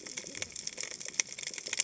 {"label": "biophony, cascading saw", "recorder": "HydroMoth"}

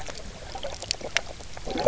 {"label": "biophony, knock croak", "recorder": "SoundTrap 300"}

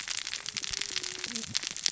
{"label": "biophony, cascading saw", "recorder": "SoundTrap 600 or HydroMoth"}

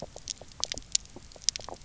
{"label": "biophony, knock croak", "recorder": "SoundTrap 300"}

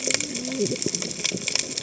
{"label": "biophony, cascading saw", "recorder": "HydroMoth"}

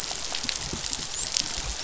{"label": "biophony, dolphin", "recorder": "SoundTrap 500"}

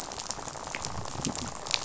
{"label": "biophony, rattle", "recorder": "SoundTrap 500"}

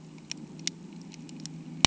{"label": "anthrophony, boat engine", "recorder": "HydroMoth"}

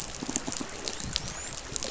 {"label": "biophony, dolphin", "recorder": "SoundTrap 500"}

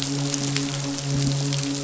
{"label": "biophony, midshipman", "recorder": "SoundTrap 500"}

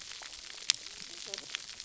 {"label": "biophony, cascading saw", "recorder": "SoundTrap 300"}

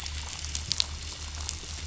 {"label": "anthrophony, boat engine", "recorder": "SoundTrap 500"}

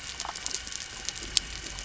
{"label": "anthrophony, boat engine", "recorder": "SoundTrap 300"}
{"label": "biophony", "recorder": "SoundTrap 300"}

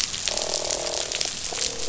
{"label": "biophony, croak", "recorder": "SoundTrap 500"}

